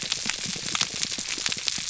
{"label": "biophony, pulse", "recorder": "SoundTrap 300"}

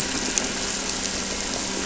{"label": "anthrophony, boat engine", "recorder": "SoundTrap 300"}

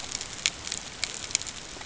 {"label": "ambient", "recorder": "HydroMoth"}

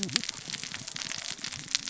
{"label": "biophony, cascading saw", "recorder": "SoundTrap 600 or HydroMoth"}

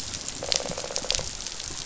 {"label": "biophony, rattle", "recorder": "SoundTrap 500"}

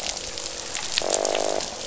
{"label": "biophony, croak", "recorder": "SoundTrap 500"}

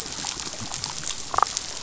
{"label": "biophony, damselfish", "recorder": "SoundTrap 500"}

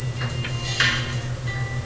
{"label": "anthrophony, boat engine", "recorder": "SoundTrap 300"}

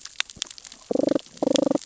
{"label": "biophony, damselfish", "recorder": "SoundTrap 600 or HydroMoth"}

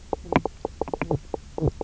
{"label": "biophony, knock croak", "recorder": "SoundTrap 300"}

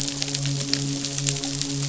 {"label": "biophony, midshipman", "recorder": "SoundTrap 500"}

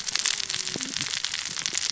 {"label": "biophony, cascading saw", "recorder": "SoundTrap 600 or HydroMoth"}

